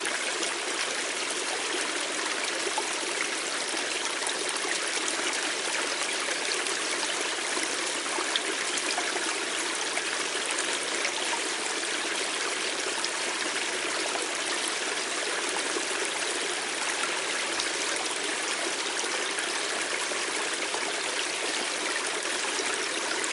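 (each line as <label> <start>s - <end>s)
A nearby stream flows steadily with gentle ripples creating a soft, continuous murmur. 0.2s - 23.2s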